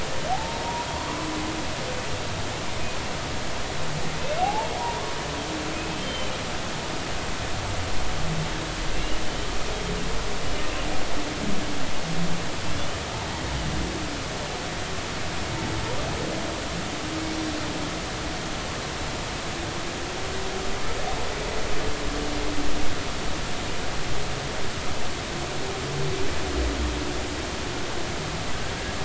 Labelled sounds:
0.3	0.6	humpback whale, 0.80 to 0.96 kHz
4.4	5.1	humpback whale, 0.80 to 1.2 kHz
5.7	6.3	humpback whale, 2.4 to 3.2 kHz
8.9	9.5	humpback whale, 2.6 to 3.1 kHz

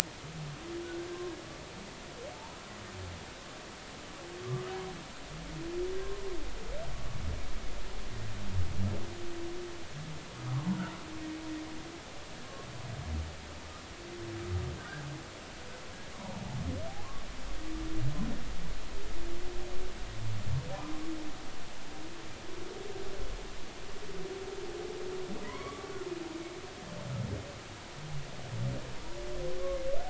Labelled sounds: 10.5	10.8	humpback whale, 0.86 to 1.2 kHz
14.8	15.0	humpback whale, 1.4 to 1.7 kHz
20.7	21.0	humpback whale, 0.80 to 1.1 kHz
25.4	25.9	humpback whale, 0.90 to 2.3 kHz
29.6	29.8	humpback whale, 1.0 to 1.2 kHz

